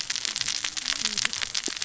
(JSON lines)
{"label": "biophony, cascading saw", "recorder": "SoundTrap 600 or HydroMoth"}